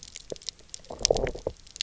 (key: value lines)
label: biophony, low growl
recorder: SoundTrap 300